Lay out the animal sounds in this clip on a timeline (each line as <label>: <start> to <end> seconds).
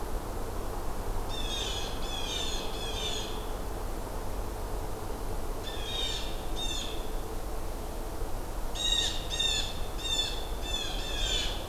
Blue Jay (Cyanocitta cristata): 1.2 to 3.5 seconds
Blue Jay (Cyanocitta cristata): 5.5 to 7.1 seconds
Blue Jay (Cyanocitta cristata): 8.6 to 11.7 seconds